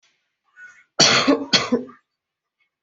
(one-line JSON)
{"expert_labels": [{"quality": "ok", "cough_type": "dry", "dyspnea": false, "wheezing": false, "stridor": false, "choking": false, "congestion": false, "nothing": true, "diagnosis": "COVID-19", "severity": "unknown"}], "gender": "female", "respiratory_condition": false, "fever_muscle_pain": false, "status": "COVID-19"}